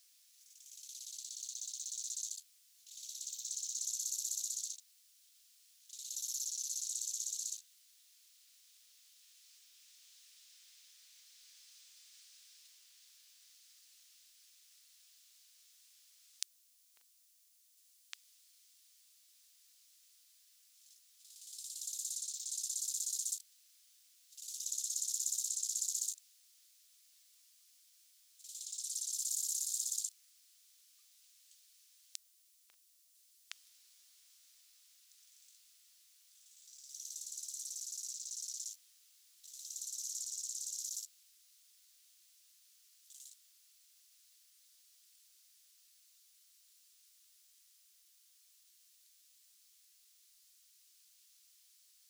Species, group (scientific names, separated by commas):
Chorthippus biguttulus, Orthoptera